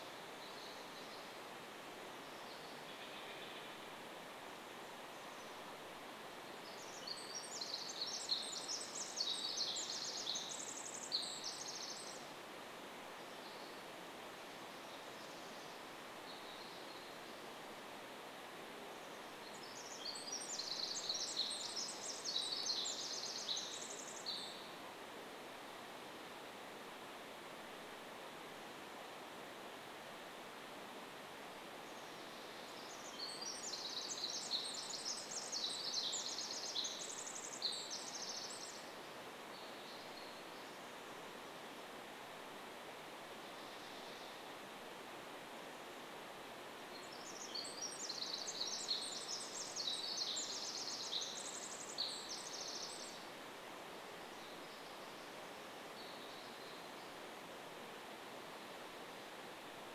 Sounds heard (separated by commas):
Chestnut-backed Chickadee call, warbler song, Steller's Jay call, Pacific Wren song